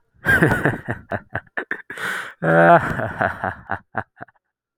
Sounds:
Laughter